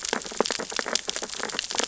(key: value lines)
label: biophony, sea urchins (Echinidae)
recorder: SoundTrap 600 or HydroMoth